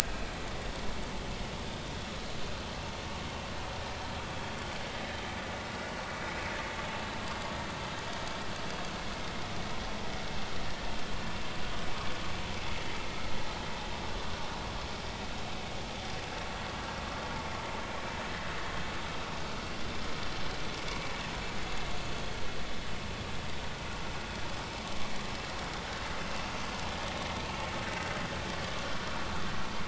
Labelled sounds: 27.5	27.7	vessel noise, 2.2 to 2.3 kHz

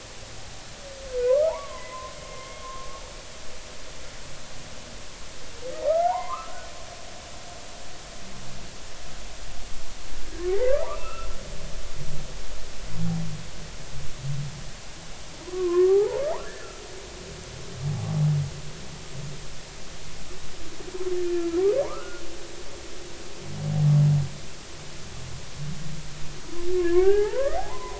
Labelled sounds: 1.3	2.9	humpback whale, 0.80 to 2.3 kHz
5.9	6.7	humpback whale, 0.80 to 2.2 kHz
10.8	11.3	humpback whale, 0.80 to 2.8 kHz
15.5	16.2	humpback whale, 0.80 to 1.3 kHz
16.6	16.8	humpback whale, 1.2 to 1.5 kHz
17.9	18.2	humpback whale, 0.80 to 0.90 kHz
21.2	21.5	humpback whale, 1.7 to 1.8 kHz
21.8	22.2	humpback whale, 0.90 to 1.5 kHz
26.8	27.9	humpback whale, 0.80 to 2.1 kHz

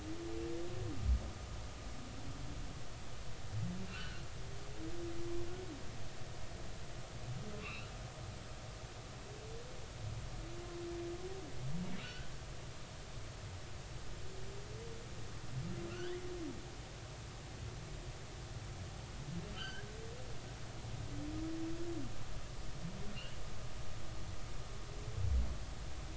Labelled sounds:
3.9	4.2	humpback whale, 1.3 to 3.1 kHz
7.6	7.9	humpback whale, 1.0 to 2.9 kHz
12.0	12.3	humpback whale, 1.4 to 1.6 kHz
15.9	16.2	humpback whale, 1.3 to 3.3 kHz
19.5	19.9	humpback whale, 1.2 to 3.2 kHz

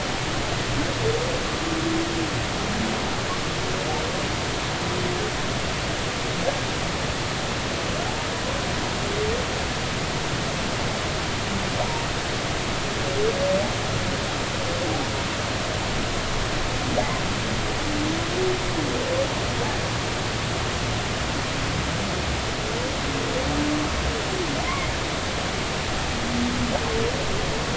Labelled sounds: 11.8	12.1	humpback whale, 0.83 to 0.99 kHz
24.7	24.9	humpback whale, 2.0 to 2.3 kHz

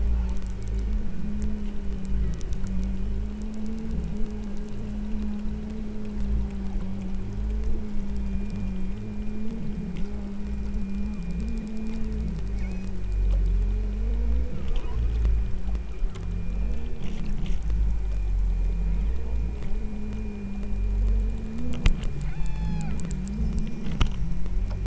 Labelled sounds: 2.1	2.8	killer whale, southern Alaska resident, 1.1 to 2.1 kHz
12.6	13.0	killer whale, southern Alaska resident, 2.0 to 6.9 kHz
22.2	23.0	killer whale, southern Alaska resident, 0.55 to 8.0 kHz

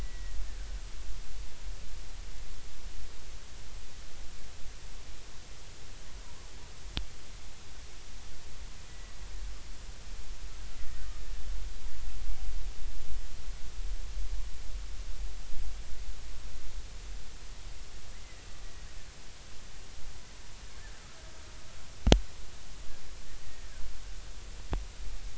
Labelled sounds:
0.0	0.4	killer whale, Bigg's (transient), 1.9 to 2.0 kHz
8.9	9.1	killer whale, Bigg's (transient), 1.9 to 2.0 kHz
10.8	11.1	killer whale, Bigg's (transient), 1.8 to 2.1 kHz
23.4	23.7	killer whale, Bigg's (transient), 1.8 to 1.9 kHz

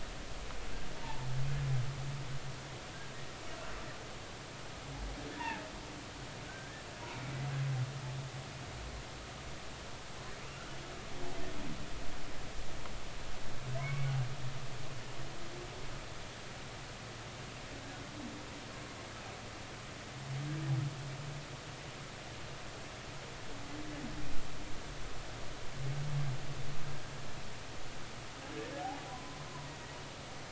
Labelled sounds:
1.0	1.3	humpback whale, 0.80 to 1.0 kHz
5.3	5.6	humpback whale, 0.83 to 1.9 kHz
6.4	6.8	humpback whale, 1.4 to 1.8 kHz
13.8	14.1	humpback whale, 0.96 to 2.3 kHz
29.1	29.4	humpback whale, 0.96 to 1.1 kHz

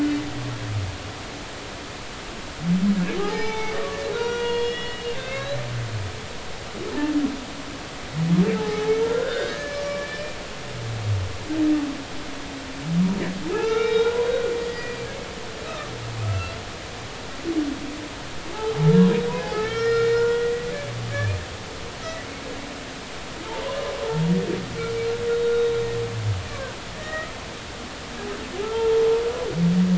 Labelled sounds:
3.2	5.6	humpback whale, 0.80 to 5.3 kHz
8.6	10.4	humpback whale, 0.80 to 5.3 kHz
13.5	15.0	humpback whale, 1.2 to 5.2 kHz
16.2	16.5	humpback whale, 1.2 to 1.4 kHz
19.4	20.7	humpback whale, 0.80 to 5.2 kHz
21.1	21.4	humpback whale, 2.2 to 2.5 kHz
23.4	23.8	humpback whale, 0.83 to 1.1 kHz
24.1	24.3	humpback whale, 0.83 to 0.99 kHz
25.5	25.8	humpback whale, 3.7 to 3.9 kHz
27.0	27.3	humpback whale, 1.2 to 2.0 kHz
28.6	29.1	humpback whale, 0.83 to 1.4 kHz

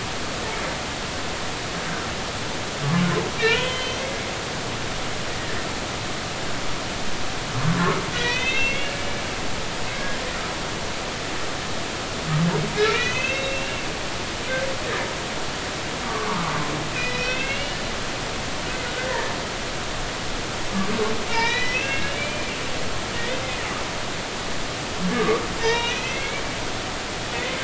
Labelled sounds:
3.4	4.0	humpback whale, 1.3 to 3.2 kHz
8.1	9.6	humpback whale, 1.9 to 6.3 kHz
9.9	10.2	humpback whale, 1.6 to 1.7 kHz
12.8	14.5	humpback whale, 1.9 to 4.2 kHz
16.0	17.8	humpback whale, 0.90 to 5.1 kHz
19.1	19.3	humpback whale, 1.7 to 2.0 kHz
21.3	22.7	humpback whale, 0.86 to 4.0 kHz
25.1	26.4	humpback whale, 0.83 to 4.1 kHz
27.3	27.6	humpback whale, 1.9 to 2.2 kHz

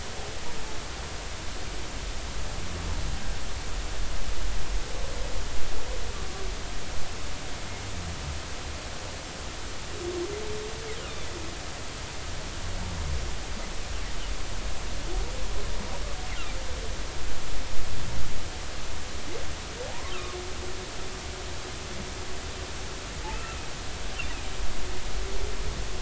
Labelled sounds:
19.9	20.4	humpback whale, 0.80 to 1.4 kHz
23.3	23.6	humpback whale, 2.3 to 2.8 kHz

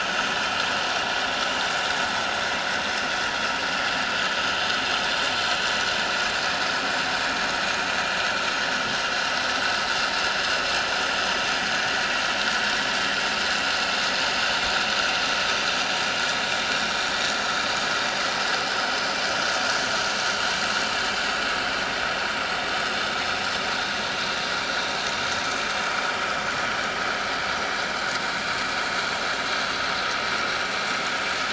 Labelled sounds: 16.8	17.0	vessel noise, 5.4 to 5.7 kHz

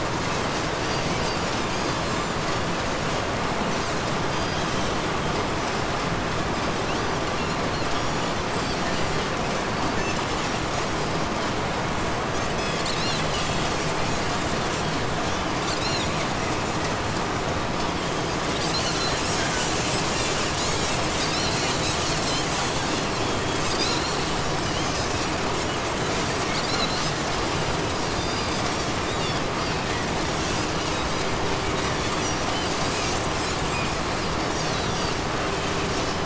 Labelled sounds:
0.0	11.5	Pacific white-sided dolphin, 1.2 to 8.0 kHz
12.2	16.9	Pacific white-sided dolphin, 1.6 to 8.0 kHz
18.1	36.2	Pacific white-sided dolphin, 1.2 to 8.0 kHz

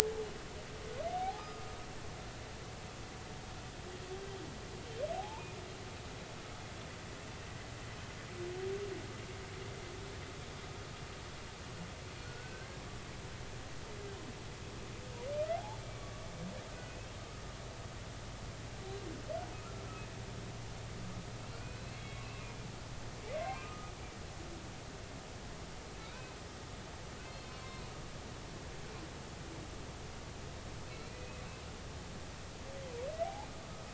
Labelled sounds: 1.1	1.6	humpback whale, 0.80 to 1.3 kHz
5.1	5.5	humpback whale, 0.80 to 1.1 kHz
12.2	12.8	humpback whale, 1.4 to 1.7 kHz
15.5	15.8	humpback whale, 0.80 to 0.96 kHz
16.7	17.0	humpback whale, 1.4 to 1.5 kHz
21.5	22.4	humpback whale, 2.2 to 4.3 kHz
23.3	23.9	humpback whale, 1.2 to 2.2 kHz
26.1	26.4	humpback whale, 2.3 to 2.6 kHz
27.2	27.5	humpback whale, 2.5 to 2.7 kHz
30.9	31.5	humpback whale, 2.1 to 2.6 kHz
33.2	33.5	humpback whale, 0.80 to 0.96 kHz

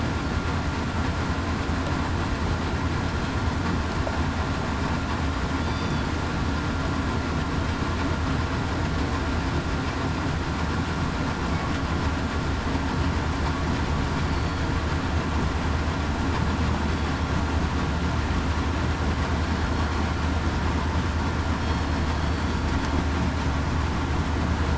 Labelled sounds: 5.6	6.1	killer whale, southern resident, 3.3 to 3.6 kHz
14.3	14.7	killer whale, southern resident, 4.4 to 4.5 kHz
21.6	22.0	killer whale, southern resident, 4.3 to 4.4 kHz

